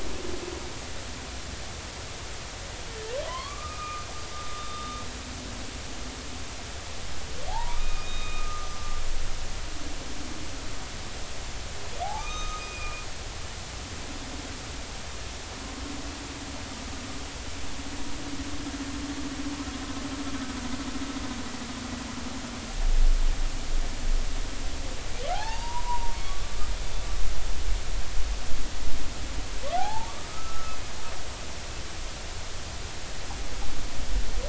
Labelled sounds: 3.2	4.1	humpback whale, 0.96 to 3.5 kHz
4.6	4.9	humpback whale, 3.6 to 3.7 kHz
7.5	8.8	humpback whale, 0.80 to 6.1 kHz
12.0	13.0	humpback whale, 0.80 to 6.4 kHz
25.3	26.6	humpback whale, 0.80 to 4.8 kHz
29.8	30.8	humpback whale, 0.80 to 1.8 kHz

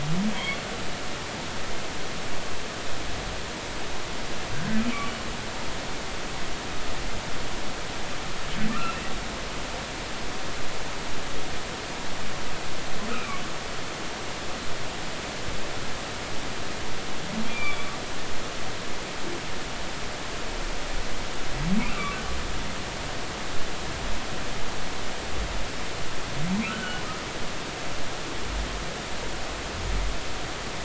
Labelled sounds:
4.5	4.8	humpback whale, 1.5 to 1.7 kHz
8.7	9.1	humpback whale, 1.1 to 2.8 kHz
13.1	13.4	humpback whale, 2.2 to 2.7 kHz
17.5	17.9	humpback whale, 2.2 to 2.6 kHz
26.6	27.0	humpback whale, 1.2 to 3.1 kHz

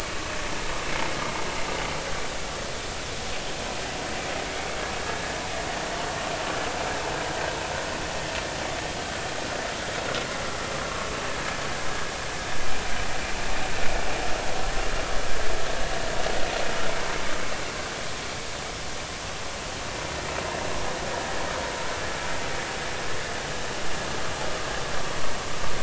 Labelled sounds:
5.0	5.4	vessel noise, 1.6 to 1.8 kHz

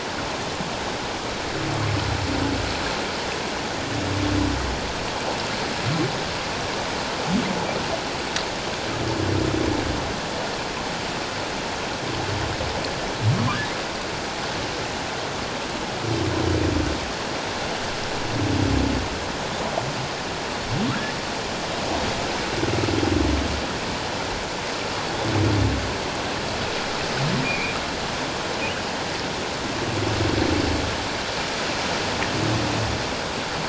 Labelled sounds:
27.4	27.8	humpback whale, 2.2 to 2.6 kHz

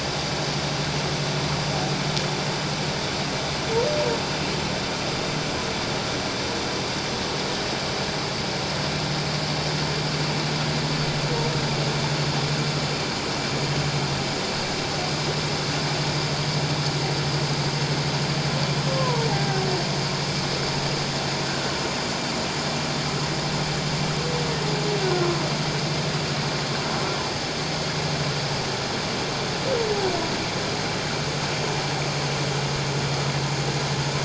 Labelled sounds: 18.9	19.3	humpback whale, 0.88 to 1.1 kHz
25.0	25.3	humpback whale, 1.3 to 1.6 kHz

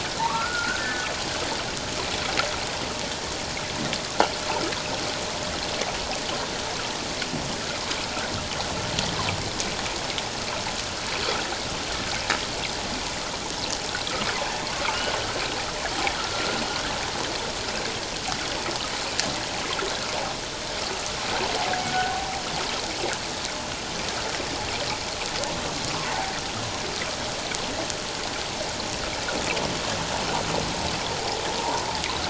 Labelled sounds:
0.2	1.1	humpback whale, 0.81 to 1.8 kHz
16.1	16.6	humpback whale, 1.2 to 1.6 kHz
21.9	22.3	humpback whale, 0.78 to 1.6 kHz
26.1	26.3	humpback whale, 0.78 to 1.0 kHz
31.6	31.9	humpback whale, 0.81 to 1.1 kHz

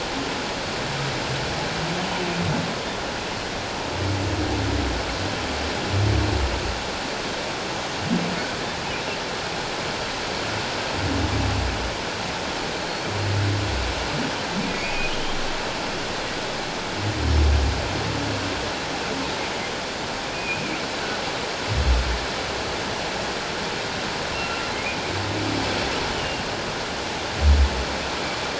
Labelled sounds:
14.6	15.1	humpback whale, 2.1 to 2.6 kHz
20.3	20.8	humpback whale, 2.2 to 2.6 kHz
24.3	25.0	humpback whale, 1.3 to 2.9 kHz
26.1	26.4	humpback whale, 2.7 to 3.1 kHz

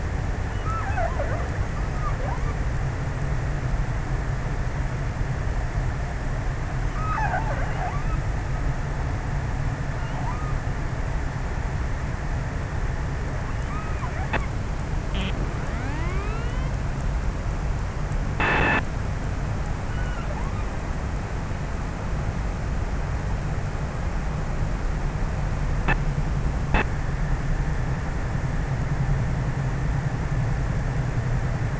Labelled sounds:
0.0	2.3	killer whale, offshore, 0.32 to 2.8 kHz
6.4	8.6	killer whale, offshore, 0.37 to 2.7 kHz
9.9	10.6	killer whale, offshore, 0.41 to 1.8 kHz
19.2	21.1	killer whale, offshore, 0.83 to 3.5 kHz

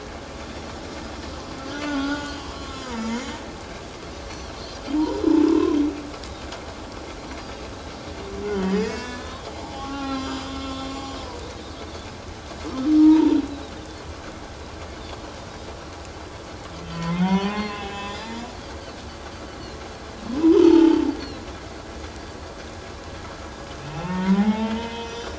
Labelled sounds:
1.6	3.0	humpback whale, 0.88 to 3.6 kHz
4.9	5.8	humpback whale, 0.88 to 1.1 kHz
8.5	11.2	humpback whale, 0.78 to 7.8 kHz
12.7	13.4	humpback whale, 0.84 to 3.2 kHz
15.0	15.2	Pacific white-sided dolphin, 3.2 to 3.7 kHz
16.9	18.2	humpback whale, 0.78 to 7.2 kHz
20.5	21.1	humpback whale, 0.78 to 3.3 kHz
23.8	25.3	humpback whale, 0.78 to 3.9 kHz

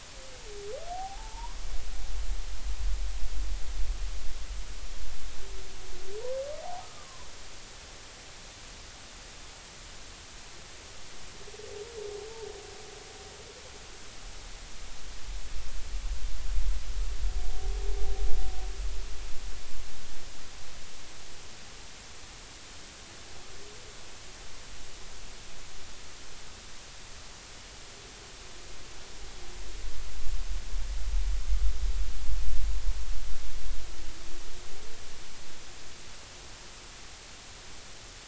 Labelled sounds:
0.9	1.6	humpback whale, 0.80 to 1.1 kHz
6.8	7.3	humpback whale, 0.96 to 1.3 kHz

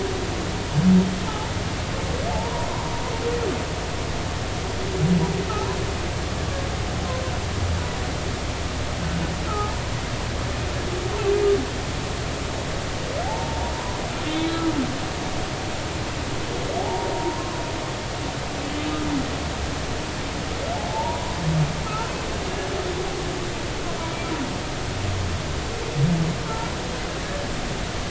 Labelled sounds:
2.3	2.7	humpback whale, 0.80 to 1.1 kHz
9.5	9.8	humpback whale, 0.80 to 1.4 kHz
13.2	14.6	humpback whale, 0.80 to 4.0 kHz
16.8	17.6	humpback whale, 0.80 to 1.1 kHz
20.9	21.3	humpback whale, 0.80 to 1.0 kHz
21.8	22.1	humpback whale, 1.2 to 1.4 kHz

